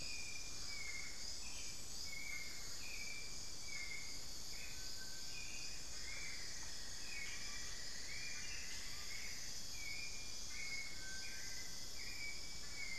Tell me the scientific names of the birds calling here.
Turdus hauxwelli, unidentified bird, Crypturellus soui, Dendrexetastes rufigula, Lipaugus vociferans